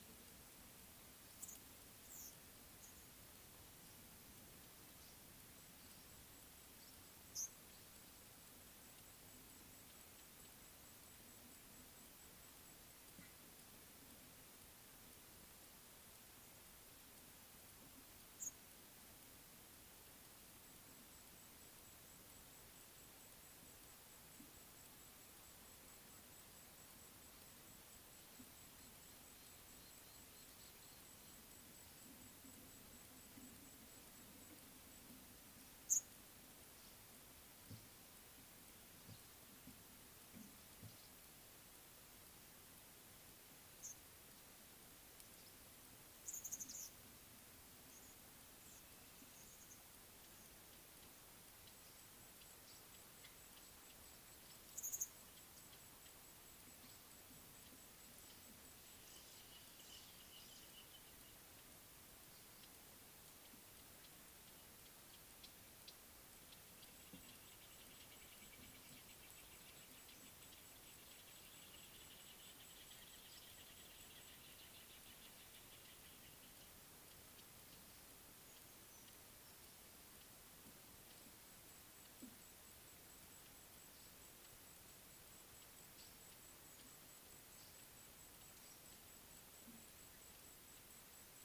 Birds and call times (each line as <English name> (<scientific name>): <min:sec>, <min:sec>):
Speckle-fronted Weaver (Sporopipes frontalis): 0:01.4, 0:07.4, 0:18.4, 0:35.9, 0:43.8, 0:46.5, 0:54.9